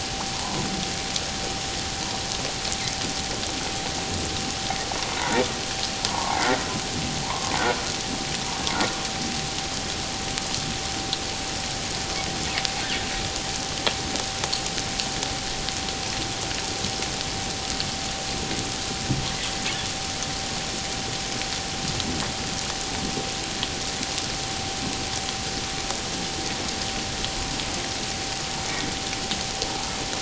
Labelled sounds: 0.3	0.7	humpback whale, 0.81 to 1.1 kHz
5.2	5.4	humpback whale, 0.84 to 1.0 kHz
6.1	7.5	humpback whale, 0.78 to 1.2 kHz

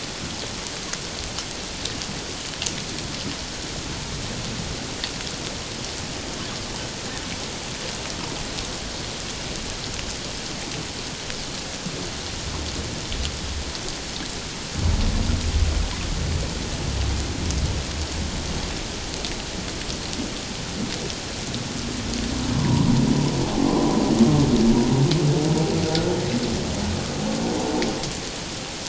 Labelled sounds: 22.5	22.9	humpback whale, 0.88 to 1.1 kHz
23.7	23.9	humpback whale, 0.94 to 1.1 kHz
25.9	26.2	humpback whale, 1.3 to 1.5 kHz

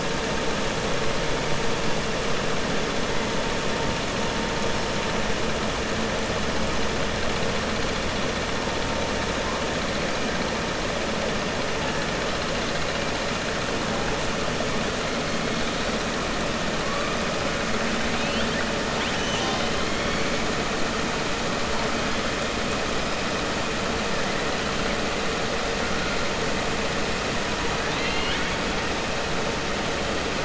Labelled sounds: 18.9	19.7	killer whale, southern resident, 2.3 to 6.2 kHz
27.8	28.6	killer whale, southern resident, 1.5 to 4.3 kHz

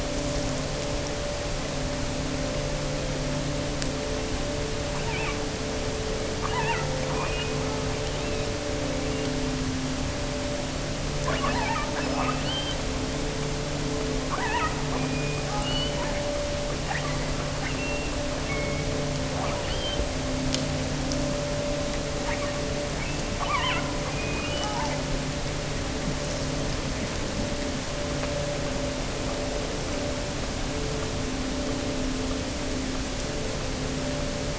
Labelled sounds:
4.8	5.5	killer whale, offshore, 0.77 to 4.1 kHz
6.3	7.9	killer whale, offshore, 0.70 to 3.2 kHz
11.1	12.9	killer whale, offshore, 0.61 to 5.5 kHz
14.2	16.1	killer whale, offshore, 0.66 to 4.8 kHz
16.8	19.0	killer whale, offshore, 0.80 to 3.6 kHz
19.3	20.1	killer whale, offshore, 0.70 to 5.0 kHz
22.1	25.0	killer whale, offshore, 0.70 to 3.3 kHz

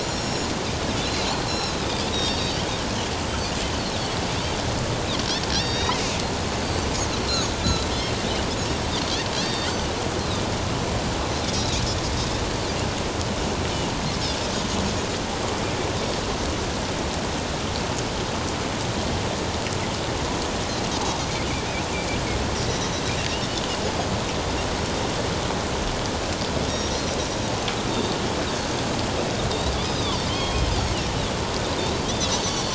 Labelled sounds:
0.0	0.5	Pacific white-sided dolphin, 5.4 to 7.1 kHz
1.0	1.9	Pacific white-sided dolphin, 3.7 to 5.5 kHz
2.1	2.6	Pacific white-sided dolphin, 3.5 to 5.8 kHz
5.5	6.0	Pacific white-sided dolphin, 3.5 to 5.9 kHz
7.6	8.2	Pacific white-sided dolphin, 3.0 to 4.1 kHz
9.3	9.7	Pacific white-sided dolphin, 3.1 to 4.7 kHz
11.5	12.1	Pacific white-sided dolphin, 3.5 to 6.9 kHz
26.6	28.2	Pacific white-sided dolphin, 3.6 to 5.9 kHz
29.8	30.7	Pacific white-sided dolphin, 1.0 to 5.1 kHz
32.0	32.7	Pacific white-sided dolphin, 3.1 to 3.6 kHz

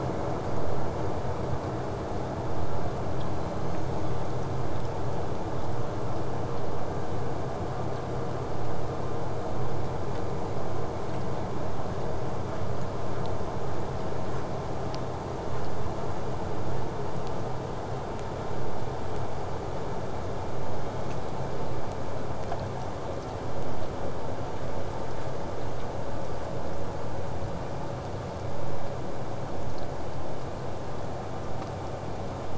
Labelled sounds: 3.3	4.2	killer whale, southern resident, J pod, call S01, 1.6 to 7.4 kHz

